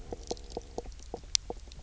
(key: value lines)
label: biophony, knock croak
recorder: SoundTrap 300